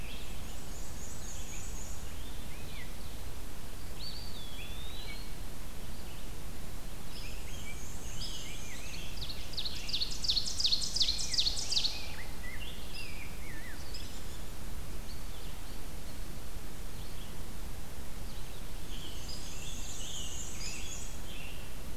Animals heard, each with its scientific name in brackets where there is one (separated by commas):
Red-eyed Vireo (Vireo olivaceus), Ovenbird (Seiurus aurocapilla), Hairy Woodpecker (Dryobates villosus), Scarlet Tanager (Piranga olivacea), Black-and-white Warbler (Mniotilta varia), Eastern Wood-Pewee (Contopus virens), Rose-breasted Grosbeak (Pheucticus ludovicianus)